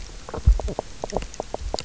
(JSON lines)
{"label": "biophony, knock croak", "recorder": "SoundTrap 300"}